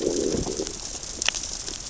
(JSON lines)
{"label": "biophony, growl", "recorder": "SoundTrap 600 or HydroMoth"}